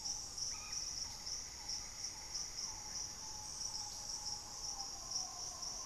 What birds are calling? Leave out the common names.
Mesembrinibis cayennensis, Hemitriccus griseipectus